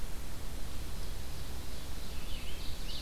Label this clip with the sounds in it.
Ovenbird, Scarlet Tanager